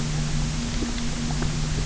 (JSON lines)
{"label": "anthrophony, boat engine", "recorder": "SoundTrap 300"}